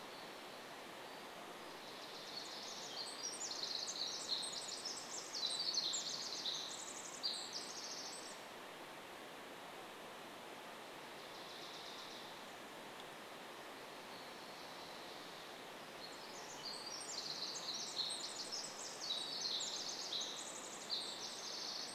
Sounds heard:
Pacific Wren song, Dark-eyed Junco song

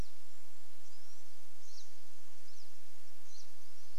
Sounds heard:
Golden-crowned Kinglet song, Pine Siskin song, Pine Siskin call

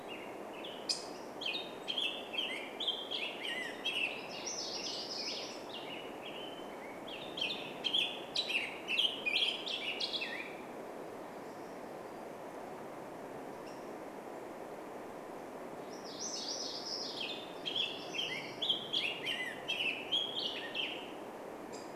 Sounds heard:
MacGillivray's Warbler song, Black-headed Grosbeak song, Pacific-slope Flycatcher call, Black-headed Grosbeak call

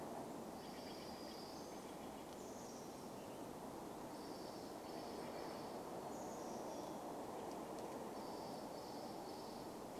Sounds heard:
Western Tanager song, Chestnut-backed Chickadee call, unidentified sound, Steller's Jay call

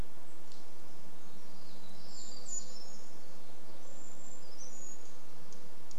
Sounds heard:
Brown Creeper song, airplane, unidentified bird chip note, warbler song, Brown Creeper call

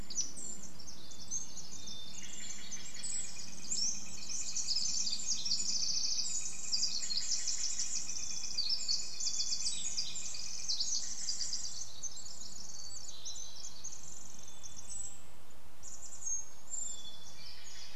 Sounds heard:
Steller's Jay call, Pacific-slope Flycatcher song, Northern Flicker call, Red-breasted Nuthatch song, Hermit Thrush song, Pacific Wren song, Brown Creeper call

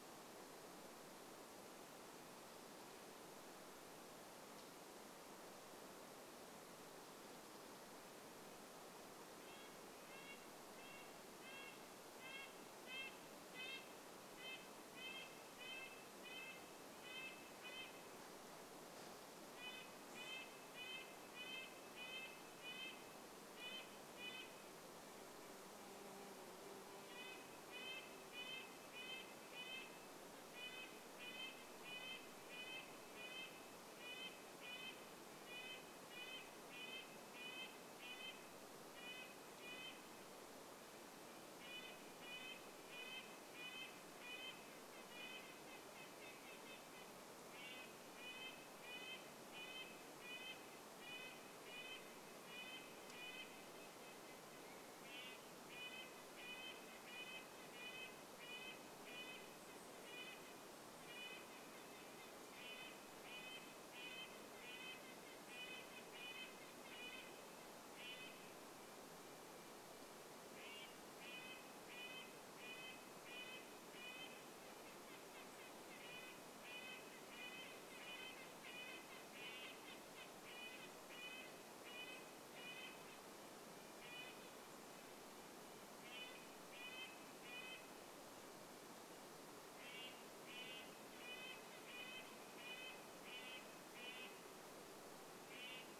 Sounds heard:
insect buzz, Chestnut-backed Chickadee call, Red-breasted Nuthatch call, Red-breasted Nuthatch song

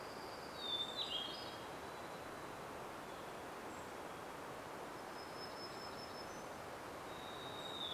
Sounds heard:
Hermit Warbler song, Hermit Thrush song, warbler song, Golden-crowned Kinglet call, Varied Thrush song

